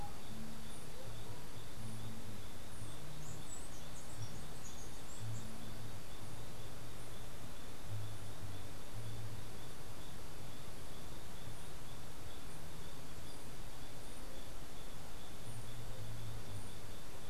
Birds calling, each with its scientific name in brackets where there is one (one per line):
Chestnut-capped Brushfinch (Arremon brunneinucha)